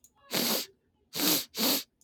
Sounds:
Sniff